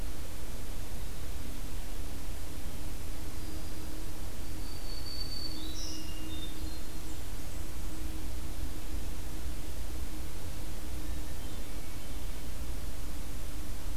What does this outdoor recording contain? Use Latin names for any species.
Setophaga virens, Catharus guttatus, Setophaga fusca